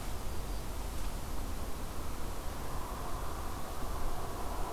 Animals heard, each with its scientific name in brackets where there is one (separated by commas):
Black-throated Green Warbler (Setophaga virens)